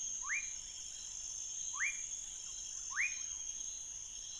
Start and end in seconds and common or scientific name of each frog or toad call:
0.0	3.3	rufous frog